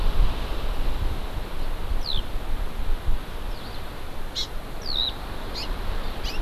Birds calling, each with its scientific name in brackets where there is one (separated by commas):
Eurasian Skylark (Alauda arvensis), Hawaii Amakihi (Chlorodrepanis virens)